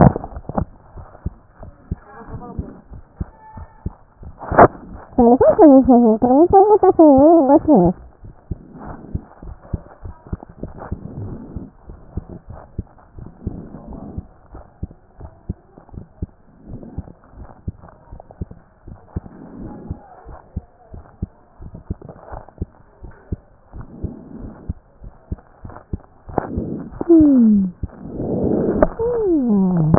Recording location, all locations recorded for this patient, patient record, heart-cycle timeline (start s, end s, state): mitral valve (MV)
aortic valve (AV)+pulmonary valve (PV)+tricuspid valve (TV)+mitral valve (MV)
#Age: Child
#Sex: Male
#Height: 127.0 cm
#Weight: 28.0 kg
#Pregnancy status: False
#Murmur: Absent
#Murmur locations: nan
#Most audible location: nan
#Systolic murmur timing: nan
#Systolic murmur shape: nan
#Systolic murmur grading: nan
#Systolic murmur pitch: nan
#Systolic murmur quality: nan
#Diastolic murmur timing: nan
#Diastolic murmur shape: nan
#Diastolic murmur grading: nan
#Diastolic murmur pitch: nan
#Diastolic murmur quality: nan
#Outcome: Normal
#Campaign: 2014 screening campaign
0.00	13.98	unannotated
13.98	14.06	S1
14.06	14.18	systole
14.18	14.26	S2
14.26	14.58	diastole
14.58	14.68	S1
14.68	14.82	systole
14.82	14.90	S2
14.90	15.24	diastole
15.24	15.36	S1
15.36	15.50	systole
15.50	15.56	S2
15.56	15.96	diastole
15.96	16.06	S1
16.06	16.22	systole
16.22	16.30	S2
16.30	16.70	diastole
16.70	16.82	S1
16.82	16.98	systole
16.98	17.06	S2
17.06	17.38	diastole
17.38	17.50	S1
17.50	17.68	systole
17.68	17.76	S2
17.76	18.14	diastole
18.14	18.24	S1
18.24	18.42	systole
18.42	18.48	S2
18.48	18.88	diastole
18.88	19.00	S1
19.00	19.16	systole
19.16	19.24	S2
19.24	19.62	diastole
19.62	19.76	S1
19.76	19.90	systole
19.90	19.98	S2
19.98	20.30	diastole
20.30	20.40	S1
20.40	20.56	systole
20.56	20.64	S2
20.64	20.98	diastole
20.98	21.08	S1
21.08	21.22	systole
21.22	21.30	S2
21.30	21.61	diastole
21.61	29.98	unannotated